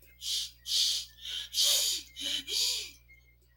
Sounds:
Sniff